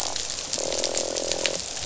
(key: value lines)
label: biophony, croak
recorder: SoundTrap 500